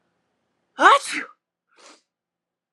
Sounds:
Sneeze